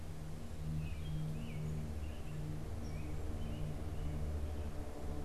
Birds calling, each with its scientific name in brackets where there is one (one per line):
American Robin (Turdus migratorius)